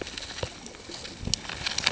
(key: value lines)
label: ambient
recorder: HydroMoth